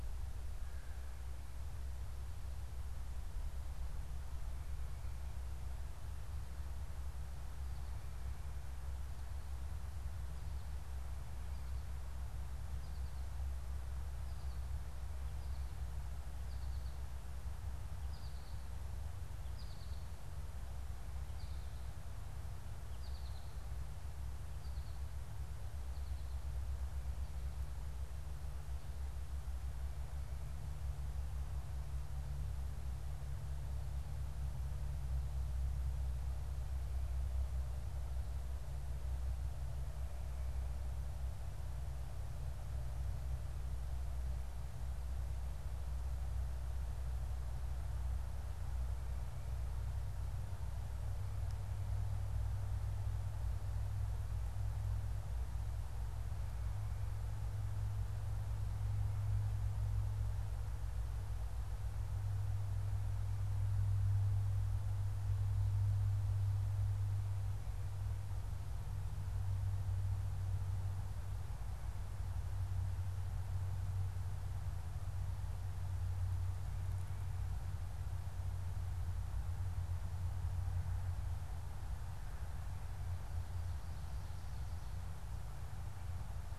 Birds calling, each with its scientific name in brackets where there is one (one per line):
American Goldfinch (Spinus tristis)